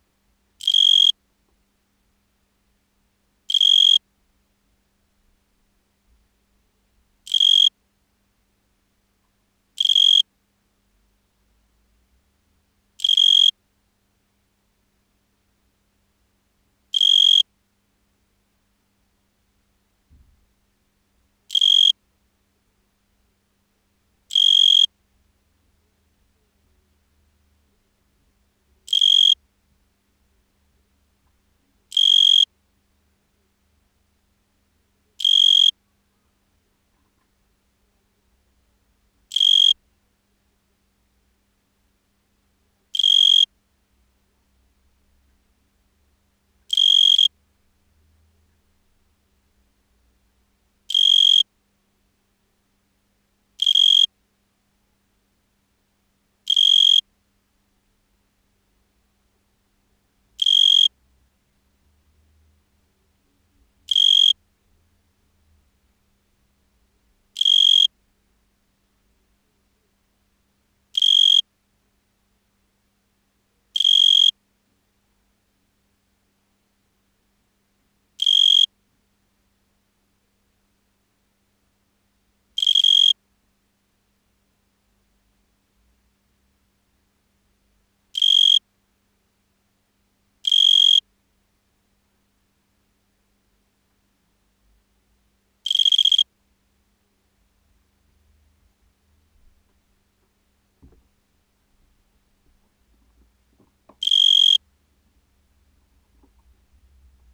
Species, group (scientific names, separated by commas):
Oecanthus pellucens, Orthoptera